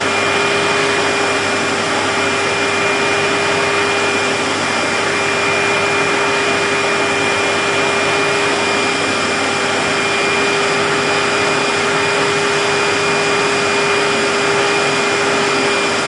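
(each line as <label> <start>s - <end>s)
A vacuum cleaner is constantly running on the floors. 0.1s - 16.0s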